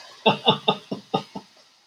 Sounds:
Laughter